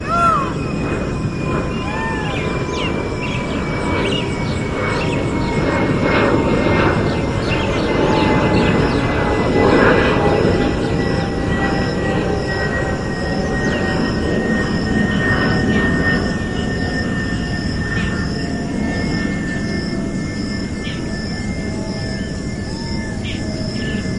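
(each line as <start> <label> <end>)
0.0 Birds caw intermittently with harsh, mid-pitched calls. 1.0
0.0 A low, steady hum of an airplane flying continuously. 24.2
0.0 Crickets chirping rhythmically with a high-pitched and steady tone. 24.2
2.2 Birds caw intermittently with harsh, mid-pitched calls. 3.0
2.3 Birds chirp with varied, melodic calls. 10.2
21.6 Birds caw intermittently with harsh, mid-pitched calls. 23.8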